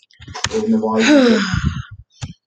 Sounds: Sigh